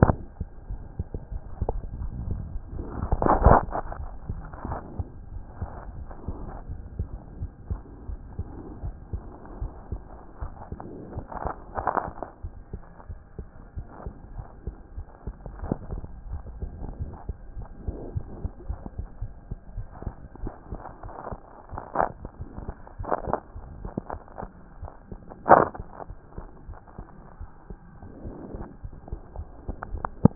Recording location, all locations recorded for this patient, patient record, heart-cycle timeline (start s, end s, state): aortic valve (AV)
aortic valve (AV)+pulmonary valve (PV)+tricuspid valve (TV)+mitral valve (MV)
#Age: Child
#Sex: Female
#Height: 106.0 cm
#Weight: 17.4 kg
#Pregnancy status: False
#Murmur: Absent
#Murmur locations: nan
#Most audible location: nan
#Systolic murmur timing: nan
#Systolic murmur shape: nan
#Systolic murmur grading: nan
#Systolic murmur pitch: nan
#Systolic murmur quality: nan
#Diastolic murmur timing: nan
#Diastolic murmur shape: nan
#Diastolic murmur grading: nan
#Diastolic murmur pitch: nan
#Diastolic murmur quality: nan
#Outcome: Abnormal
#Campaign: 2014 screening campaign
0.00	4.66	unannotated
4.66	4.80	S1
4.80	4.96	systole
4.96	5.08	S2
5.08	5.34	diastole
5.34	5.44	S1
5.44	5.60	systole
5.60	5.70	S2
5.70	5.88	diastole
5.88	6.06	S1
6.06	6.28	systole
6.28	6.50	S2
6.50	6.68	diastole
6.68	6.82	S1
6.82	6.98	systole
6.98	7.12	S2
7.12	7.38	diastole
7.38	7.50	S1
7.50	7.68	systole
7.68	7.82	S2
7.82	8.08	diastole
8.08	8.20	S1
8.20	8.38	systole
8.38	8.52	S2
8.52	8.82	diastole
8.82	8.96	S1
8.96	9.12	systole
9.12	9.28	S2
9.28	9.58	diastole
9.58	9.72	S1
9.72	9.90	systole
9.90	10.04	S2
10.04	10.42	diastole
10.42	10.50	S1
10.50	10.72	systole
10.72	10.80	S2
10.80	11.12	diastole
11.12	11.24	S1
11.24	11.44	systole
11.44	11.54	S2
11.54	11.78	diastole
11.78	11.86	S1
11.86	12.08	systole
12.08	12.14	S2
12.14	12.44	diastole
12.44	12.50	S1
12.50	12.74	systole
12.74	12.82	S2
12.82	13.10	diastole
13.10	13.18	S1
13.18	13.40	systole
13.40	13.46	S2
13.46	13.78	diastole
13.78	13.86	S1
13.86	14.06	systole
14.06	14.14	S2
14.14	14.34	diastole
14.34	14.44	S1
14.44	14.68	systole
14.68	14.76	S2
14.76	14.96	diastole
14.96	15.04	S1
15.04	15.28	systole
15.28	15.34	S2
15.34	15.56	diastole
15.56	15.78	S1
15.78	15.90	systole
15.90	16.02	S2
16.02	16.26	diastole
16.26	16.42	S1
16.42	16.60	systole
16.60	16.74	S2
16.74	16.99	diastole
16.99	17.06	S1
17.06	17.28	systole
17.28	17.36	S2
17.36	17.58	diastole
17.58	17.66	S1
17.66	17.86	systole
17.86	18.00	S2
18.00	18.14	diastole
18.14	18.24	S1
18.24	18.42	systole
18.42	18.52	S2
18.52	18.68	diastole
18.68	18.78	S1
18.78	18.96	systole
18.96	19.08	S2
19.08	19.22	diastole
19.22	19.30	S1
19.30	19.50	systole
19.50	19.58	S2
19.58	19.76	diastole
19.76	19.86	S1
19.86	20.06	systole
20.06	20.14	S2
20.14	20.42	diastole
20.42	20.52	S1
20.52	20.72	systole
20.72	20.80	S2
20.80	21.03	diastole
21.03	30.35	unannotated